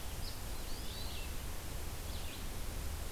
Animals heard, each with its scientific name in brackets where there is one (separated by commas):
Red-eyed Vireo (Vireo olivaceus)